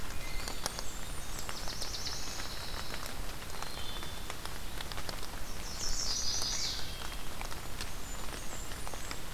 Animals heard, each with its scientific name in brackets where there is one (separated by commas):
Blackburnian Warbler (Setophaga fusca), Pine Warbler (Setophaga pinus), Eastern Wood-Pewee (Contopus virens), Chestnut-sided Warbler (Setophaga pensylvanica), Black-throated Blue Warbler (Setophaga caerulescens), Wood Thrush (Hylocichla mustelina)